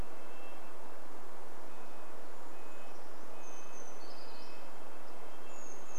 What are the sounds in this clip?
Red-breasted Nuthatch song, Brown Creeper song